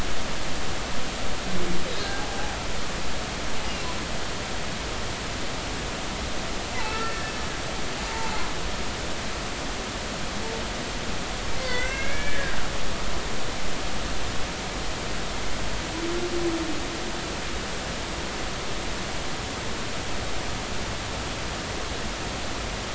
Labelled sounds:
2.2	2.5	humpback whale, 0.80 to 0.90 kHz
6.8	7.3	humpback whale, 1.3 to 2.7 kHz
8.0	8.3	humpback whale, 0.83 to 1.0 kHz
11.6	12.6	humpback whale, 1.4 to 2.8 kHz

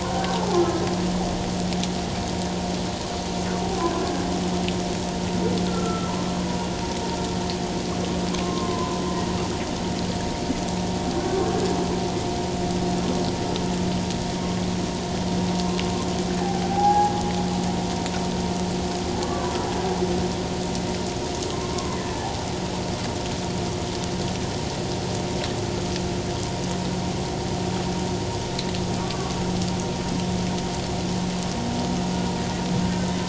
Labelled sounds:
0.0	0.4	humpback whale, 1.4 to 1.6 kHz
3.8	4.0	humpback whale, 0.97 to 1.1 kHz
5.7	6.1	humpback whale, 1.3 to 1.4 kHz
8.4	9.0	humpback whale, 0.94 to 1.1 kHz
16.4	17.1	humpback whale, 0.78 to 0.91 kHz
19.2	19.5	humpback whale, 1.1 to 1.2 kHz
21.7	22.0	humpback whale, 0.97 to 1.2 kHz
29.0	29.4	humpback whale, 1.1 to 1.2 kHz
32.8	33.1	humpback whale, 1.5 to 1.6 kHz

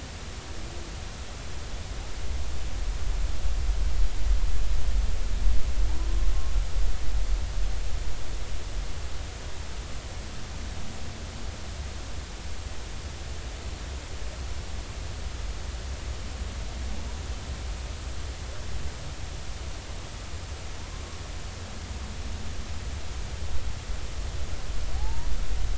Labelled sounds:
25.0	25.3	humpback whale, 0.80 to 1.0 kHz

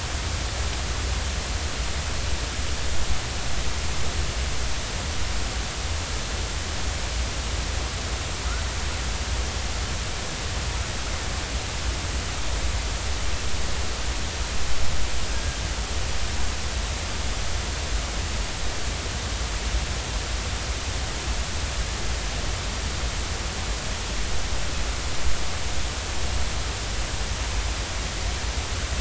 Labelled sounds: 15.3	15.6	killer whale, northern resident, 1.5 to 1.7 kHz

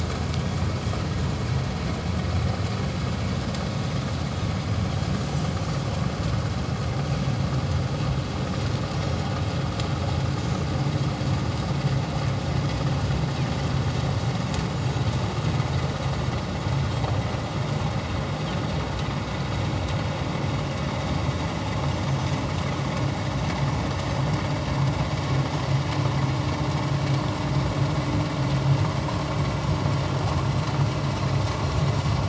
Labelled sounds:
8.9	9.3	Pacific white-sided dolphin, 5.4 to 5.7 kHz

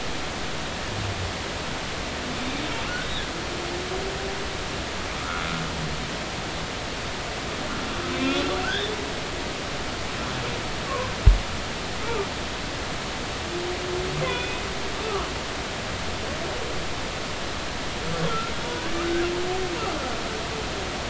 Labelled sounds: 8.1	8.9	humpback whale, 1.3 to 2.6 kHz
14.3	15.3	humpback whale, 1.1 to 3.6 kHz
18.3	19.2	humpback whale, 0.93 to 1.8 kHz

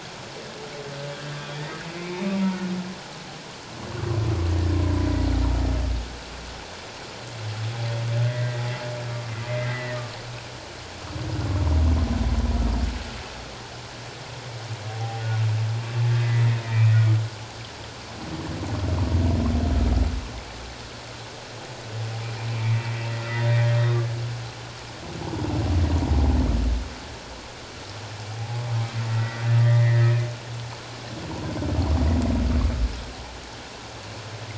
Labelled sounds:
8.2	8.7	humpback whale, 1.9 to 2.0 kHz
9.5	10.0	humpback whale, 1.8 to 2.1 kHz
14.9	15.2	humpback whale, 0.78 to 0.84 kHz
16.2	16.9	humpback whale, 1.8 to 2.6 kHz
22.5	22.9	humpback whale, 1.9 to 2.5 kHz
29.1	30.2	humpback whale, 1.6 to 2.2 kHz

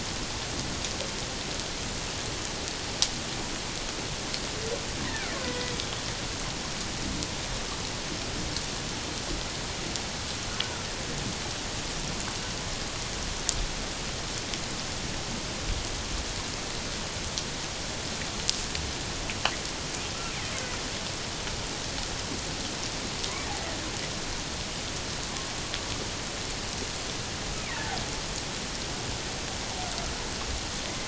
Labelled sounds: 5.1	5.7	killer whale, Bigg's (transient), 0.97 to 2.0 kHz
27.7	28.0	killer whale, Bigg's (transient), 0.78 to 0.94 kHz

